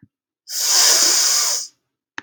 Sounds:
Sniff